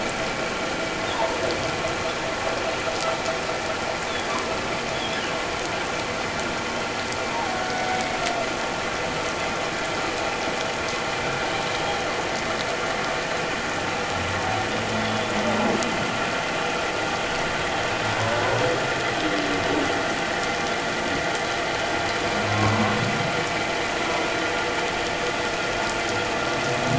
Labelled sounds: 1.1	1.4	humpback whale, 0.81 to 1.1 kHz
4.9	5.2	humpback whale, 3.2 to 3.5 kHz
7.3	8.2	humpback whale, 0.78 to 2.3 kHz
15.0	15.3	humpback whale, 3.3 to 3.5 kHz
22.5	22.7	humpback whale, 0.97 to 1.1 kHz

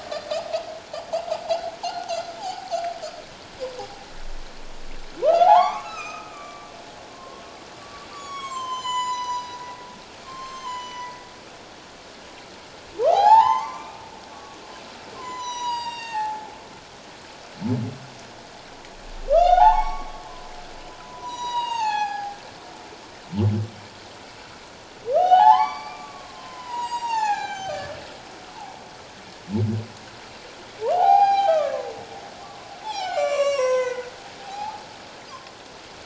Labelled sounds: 1.8	2.7	humpback whale, 0.78 to 6.4 kHz
5.2	6.7	humpback whale, 0.78 to 6.4 kHz
7.1	9.6	humpback whale, 0.91 to 8.0 kHz
10.2	11.1	humpback whale, 0.88 to 7.6 kHz
13.1	14.6	humpback whale, 0.78 to 6.4 kHz
15.2	16.5	humpback whale, 0.78 to 8.0 kHz
19.3	20.5	humpback whale, 0.78 to 5.7 kHz
21.0	22.4	humpback whale, 0.78 to 8.0 kHz
25.2	27.9	humpback whale, 0.78 to 7.7 kHz
30.9	31.9	humpback whale, 0.78 to 4.9 kHz
32.4	34.1	humpback whale, 0.78 to 8.0 kHz
34.4	34.8	humpback whale, 0.78 to 0.94 kHz

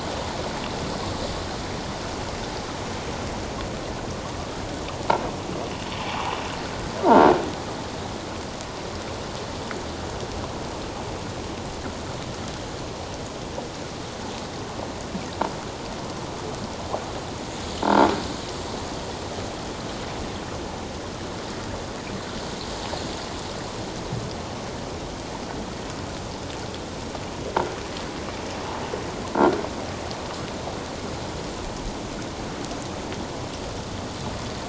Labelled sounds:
17.8	18.1	croaking sound likely from a nearby submerged object, 0.84 to 1.0 kHz

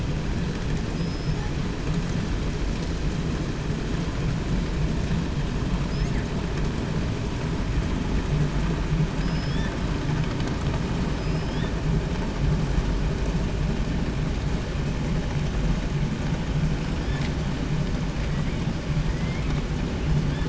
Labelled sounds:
0.9	1.6	killer whale, southern resident, 0.30 to 8.0 kHz
5.8	6.3	killer whale, 1.4 to 8.0 kHz
9.2	9.9	killer whale, southern resident, 0.30 to 8.0 kHz
11.1	11.8	killer whale, southern resident, 0.80 to 6.8 kHz
16.9	17.3	killer whale, 1.2 to 5.8 kHz
18.2	18.6	killer whale, 1.4 to 2.5 kHz
18.9	19.6	killer whale, 1.4 to 3.0 kHz
20.0	20.4	killer whale, 1.2 to 5.7 kHz

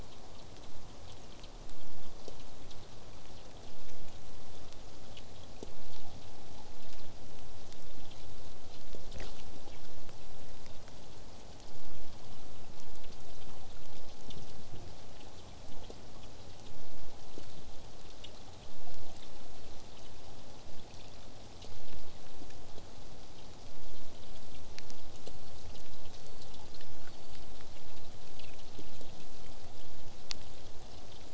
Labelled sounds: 25.2	28.3	killer whale, southern resident, J pod, whistle, 3.9 to 5.3 kHz

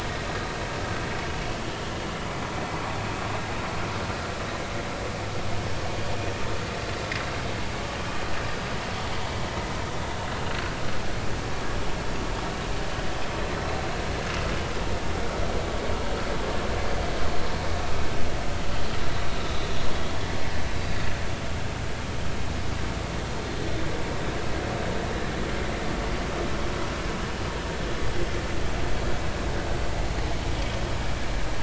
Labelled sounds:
1.3	1.6	vessel noise, 2.8 to 3.0 kHz
8.5	8.7	vessel noise, 4.9 to 5.2 kHz

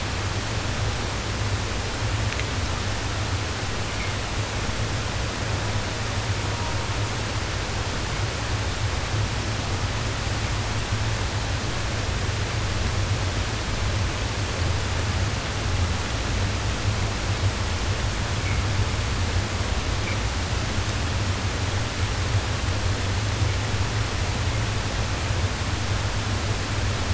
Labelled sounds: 5.5	6.0	killer whale, southern resident, 0.33 to 1.2 kHz
6.4	7.0	killer whale, southern resident, 0.26 to 1.1 kHz

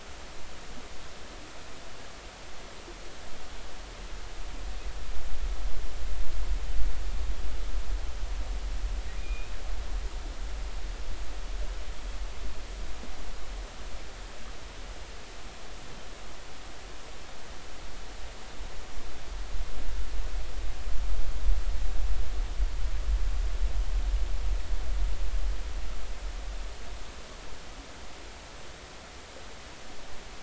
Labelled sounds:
9.2	9.6	killer whale, 2.3 to 2.6 kHz

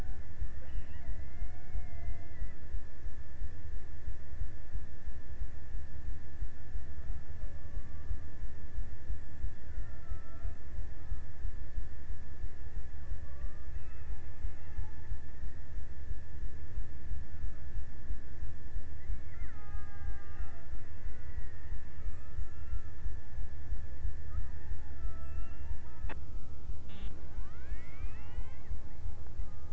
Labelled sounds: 0.2	3.2	killer whale, Bigg's (transient), 0.45 to 3.3 kHz
6.7	10.9	killer whale, Bigg's (transient), 0.37 to 2.1 kHz
12.8	14.2	killer whale, Bigg's (transient), 0.33 to 1.5 kHz
19.0	20.8	killer whale, Bigg's (transient), 0.36 to 2.6 kHz
21.7	22.9	killer whale, Bigg's (transient), 0.88 to 2.0 kHz
24.2	26.1	killer whale, Bigg's (transient), 0.34 to 1.8 kHz

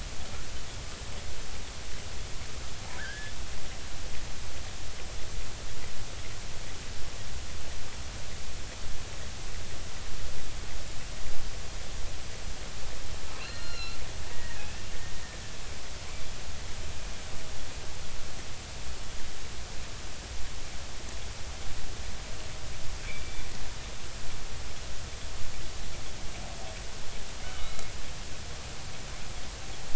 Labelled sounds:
3.0	3.3	killer whale, offshore, 1.4 to 1.8 kHz
13.4	14.0	killer whale, offshore, 1.3 to 4.3 kHz
14.3	14.6	killer whale, offshore, 1.8 to 2.0 kHz
23.1	23.5	killer whale, offshore, 2.1 to 2.4 kHz
27.4	27.9	killer whale, offshore, 1.2 to 4.0 kHz

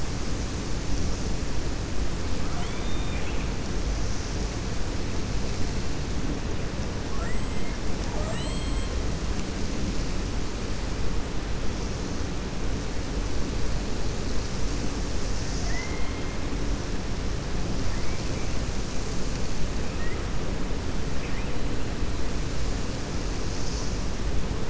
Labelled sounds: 2.4	3.5	killer whale, 0.72 to 3.7 kHz
7.2	7.7	killer whale, 7.4 to 7.9 kHz
8.2	8.9	killer whale, 6.9 to 7.8 kHz
15.6	16.3	killer whale, 1.8 to 3.0 kHz

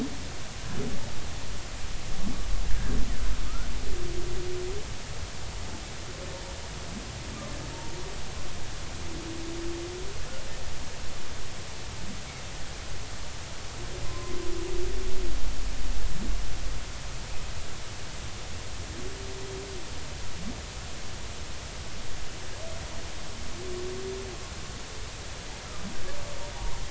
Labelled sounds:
14.0	14.3	humpback whale, 0.99 to 1.1 kHz
26.5	26.8	humpback whale, 0.90 to 1.1 kHz

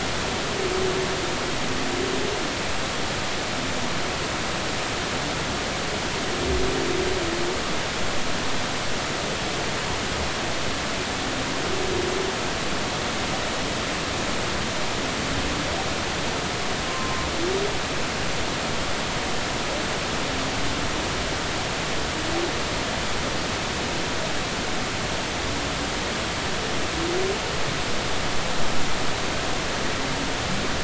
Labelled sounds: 16.9	17.3	humpback whale, 0.99 to 1.1 kHz

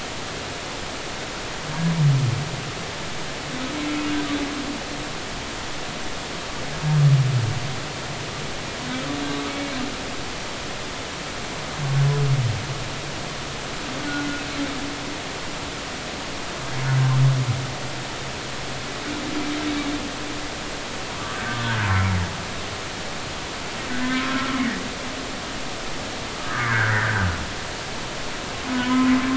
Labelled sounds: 9.2	9.8	humpback whale, 2.2 to 4.0 kHz
14.0	14.4	humpback whale, 1.4 to 1.6 kHz
21.1	21.4	humpback whale, 1.1 to 1.3 kHz
24.0	24.6	humpback whale, 1.2 to 1.9 kHz
26.4	27.3	humpback whale, 1.2 to 2.1 kHz
28.7	29.1	humpback whale, 0.96 to 1.1 kHz

